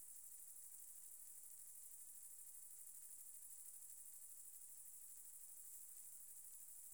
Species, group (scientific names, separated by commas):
Platycleis intermedia, Orthoptera